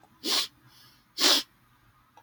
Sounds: Sniff